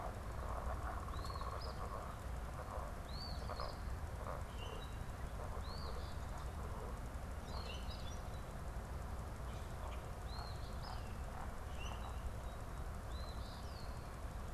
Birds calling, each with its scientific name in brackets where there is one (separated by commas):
unidentified bird, Common Grackle (Quiscalus quiscula), Eastern Phoebe (Sayornis phoebe)